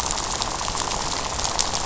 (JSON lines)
{"label": "biophony, rattle", "recorder": "SoundTrap 500"}